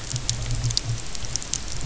{"label": "anthrophony, boat engine", "recorder": "SoundTrap 300"}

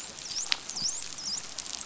{"label": "biophony, dolphin", "recorder": "SoundTrap 500"}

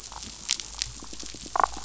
{"label": "biophony, damselfish", "recorder": "SoundTrap 500"}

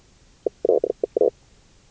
{"label": "biophony, knock croak", "recorder": "SoundTrap 300"}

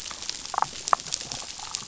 {"label": "biophony, damselfish", "recorder": "SoundTrap 500"}
{"label": "biophony", "recorder": "SoundTrap 500"}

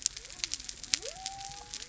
{"label": "biophony", "recorder": "SoundTrap 300"}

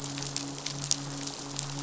{"label": "biophony, midshipman", "recorder": "SoundTrap 500"}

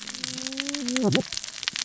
{"label": "biophony, cascading saw", "recorder": "SoundTrap 600 or HydroMoth"}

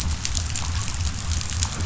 {"label": "biophony", "recorder": "SoundTrap 500"}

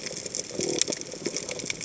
{"label": "biophony", "recorder": "HydroMoth"}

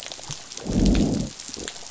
{"label": "biophony, growl", "recorder": "SoundTrap 500"}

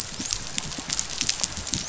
{"label": "biophony, dolphin", "recorder": "SoundTrap 500"}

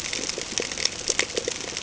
{"label": "ambient", "recorder": "HydroMoth"}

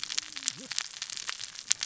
{"label": "biophony, cascading saw", "recorder": "SoundTrap 600 or HydroMoth"}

